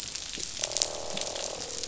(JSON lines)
{"label": "biophony, croak", "recorder": "SoundTrap 500"}